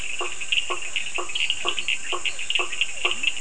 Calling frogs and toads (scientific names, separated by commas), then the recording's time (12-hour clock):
Dendropsophus minutus, Boana faber, Sphaenorhynchus surdus, Boana bischoffi, Leptodactylus latrans
9:00pm